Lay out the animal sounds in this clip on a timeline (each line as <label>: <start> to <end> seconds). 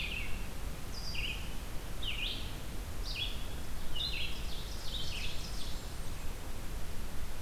Red-eyed Vireo (Vireo olivaceus): 0.0 to 4.5 seconds
Ovenbird (Seiurus aurocapilla): 3.9 to 6.0 seconds
Blackburnian Warbler (Setophaga fusca): 5.1 to 6.5 seconds